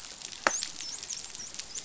{"label": "biophony, dolphin", "recorder": "SoundTrap 500"}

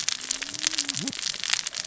{"label": "biophony, cascading saw", "recorder": "SoundTrap 600 or HydroMoth"}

